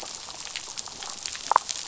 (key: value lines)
label: biophony, damselfish
recorder: SoundTrap 500